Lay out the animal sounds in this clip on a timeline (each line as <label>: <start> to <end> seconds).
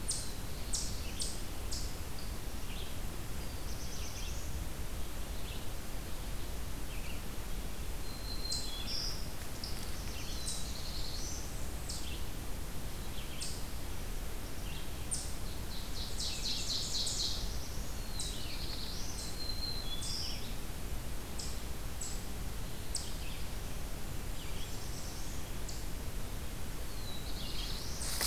Black-throated Blue Warbler (Setophaga caerulescens): 0.0 to 1.5 seconds
Red-eyed Vireo (Vireo olivaceus): 0.0 to 15.0 seconds
Eastern Chipmunk (Tamias striatus): 0.0 to 23.2 seconds
Black-throated Blue Warbler (Setophaga caerulescens): 3.3 to 4.9 seconds
Black-throated Green Warbler (Setophaga virens): 7.8 to 9.4 seconds
Black-throated Blue Warbler (Setophaga caerulescens): 9.6 to 11.7 seconds
Blackburnian Warbler (Setophaga fusca): 10.6 to 12.1 seconds
Ovenbird (Seiurus aurocapilla): 15.3 to 17.9 seconds
Black-throated Blue Warbler (Setophaga caerulescens): 16.8 to 19.3 seconds
Black-throated Green Warbler (Setophaga virens): 19.0 to 20.6 seconds
Red-eyed Vireo (Vireo olivaceus): 22.9 to 27.9 seconds
Black-throated Blue Warbler (Setophaga caerulescens): 23.9 to 25.6 seconds
Blackburnian Warbler (Setophaga fusca): 24.0 to 25.8 seconds
Black-throated Blue Warbler (Setophaga caerulescens): 26.7 to 28.3 seconds